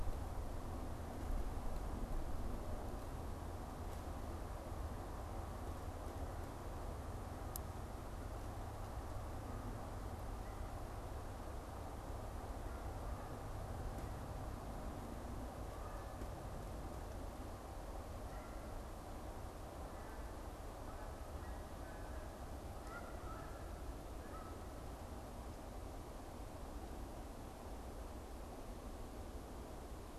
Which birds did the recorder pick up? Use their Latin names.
Branta canadensis